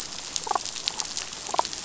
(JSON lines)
{"label": "biophony, damselfish", "recorder": "SoundTrap 500"}